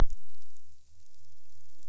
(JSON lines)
{"label": "biophony", "recorder": "SoundTrap 300"}